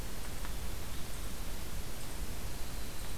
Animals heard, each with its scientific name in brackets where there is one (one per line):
Winter Wren (Troglodytes hiemalis)